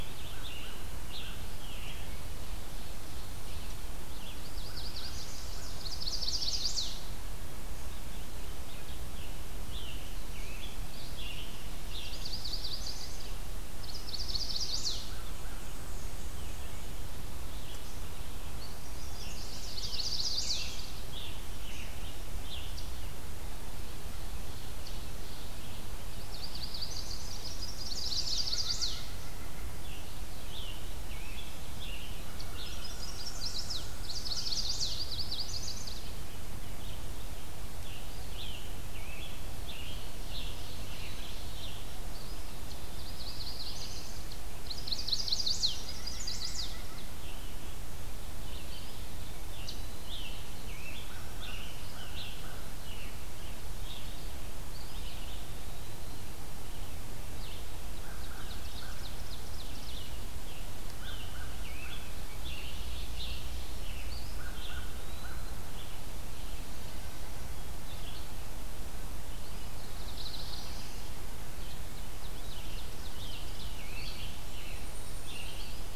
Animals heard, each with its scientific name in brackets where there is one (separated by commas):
White-breasted Nuthatch (Sitta carolinensis), Ovenbird (Seiurus aurocapilla), Chestnut-sided Warbler (Setophaga pensylvanica), Red-eyed Vireo (Vireo olivaceus), Cedar Waxwing (Bombycilla cedrorum), Scarlet Tanager (Piranga olivacea), Eastern Wood-Pewee (Contopus virens), American Crow (Corvus brachyrhynchos), Black-throated Blue Warbler (Setophaga caerulescens), Black-and-white Warbler (Mniotilta varia)